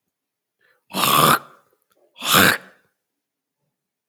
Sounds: Throat clearing